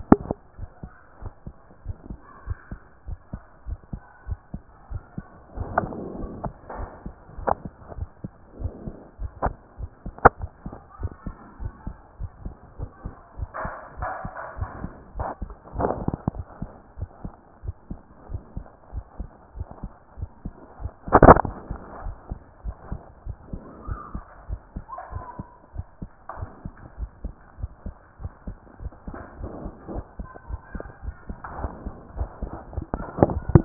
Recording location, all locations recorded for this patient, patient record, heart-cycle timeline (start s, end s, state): aortic valve (AV)
aortic valve (AV)+tricuspid valve (TV)+mitral valve (MV)
#Age: Child
#Sex: Male
#Height: 124.0 cm
#Weight: 44.4 kg
#Pregnancy status: False
#Murmur: Absent
#Murmur locations: nan
#Most audible location: nan
#Systolic murmur timing: nan
#Systolic murmur shape: nan
#Systolic murmur grading: nan
#Systolic murmur pitch: nan
#Systolic murmur quality: nan
#Diastolic murmur timing: nan
#Diastolic murmur shape: nan
#Diastolic murmur grading: nan
#Diastolic murmur pitch: nan
#Diastolic murmur quality: nan
#Outcome: Abnormal
#Campaign: 2014 screening campaign
0.00	0.46	unannotated
0.46	0.58	diastole
0.58	0.68	S1
0.68	0.82	systole
0.82	0.92	S2
0.92	1.22	diastole
1.22	1.32	S1
1.32	1.46	systole
1.46	1.56	S2
1.56	1.86	diastole
1.86	1.96	S1
1.96	2.08	systole
2.08	2.18	S2
2.18	2.46	diastole
2.46	2.58	S1
2.58	2.70	systole
2.70	2.80	S2
2.80	3.08	diastole
3.08	3.18	S1
3.18	3.32	systole
3.32	3.42	S2
3.42	3.66	diastole
3.66	3.78	S1
3.78	3.92	systole
3.92	4.00	S2
4.00	4.28	diastole
4.28	4.38	S1
4.38	4.52	systole
4.52	4.62	S2
4.62	4.90	diastole
4.90	5.02	S1
5.02	5.16	systole
5.16	5.26	S2
5.26	5.56	diastole
5.56	33.65	unannotated